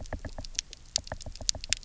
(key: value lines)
label: biophony, knock
recorder: SoundTrap 300